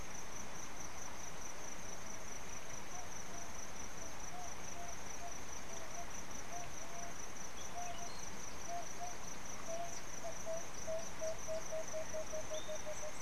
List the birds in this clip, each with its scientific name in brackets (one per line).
Emerald-spotted Wood-Dove (Turtur chalcospilos)